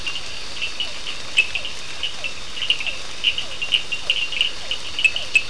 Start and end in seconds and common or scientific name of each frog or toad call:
0.0	5.4	two-colored oval frog
0.0	5.4	Cochran's lime tree frog
0.2	5.4	Physalaemus cuvieri